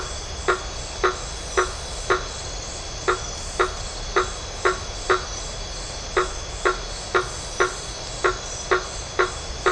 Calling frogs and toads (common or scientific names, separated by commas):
blacksmith tree frog